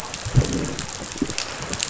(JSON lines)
{"label": "biophony, growl", "recorder": "SoundTrap 500"}